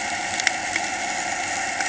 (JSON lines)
{"label": "anthrophony, boat engine", "recorder": "HydroMoth"}